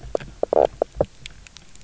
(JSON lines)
{"label": "biophony, knock croak", "recorder": "SoundTrap 300"}